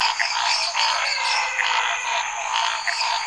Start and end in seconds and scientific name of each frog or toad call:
0.0	3.2	Boana raniceps
0.0	3.2	Dendropsophus minutus
0.0	3.2	Scinax fuscovarius
0.3	3.2	Physalaemus nattereri
0.7	3.2	Physalaemus albonotatus
2.4	3.2	Elachistocleis matogrosso